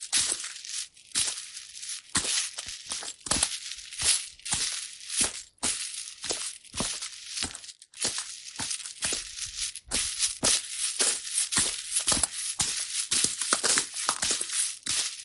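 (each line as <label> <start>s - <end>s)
Footsteps clinking on coins with a metallic sound in a slow, repeating pattern. 0.0s - 9.9s
Footsteps clinking on coins with a metallic sound in a fast, repeating pattern. 9.9s - 15.2s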